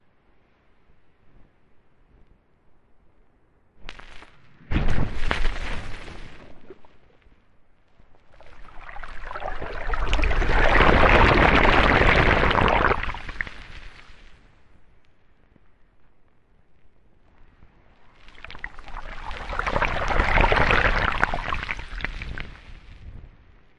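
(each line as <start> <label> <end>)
3.7 A muffled crackling noise. 4.4
4.4 A friction noise quickly increases in intensity. 5.9
5.9 A muffled crackling noise. 6.4
6.4 A soft, quiet water splash. 6.9
7.9 Water splashes gradually increase in intensity and then fade. 13.9
18.3 Water splashes gradually increase in intensity and then fade. 22.8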